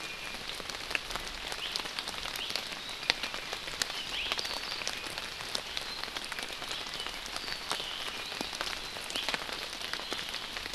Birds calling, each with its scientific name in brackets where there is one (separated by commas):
Iiwi (Drepanis coccinea), Apapane (Himatione sanguinea)